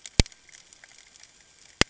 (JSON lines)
{"label": "ambient", "recorder": "HydroMoth"}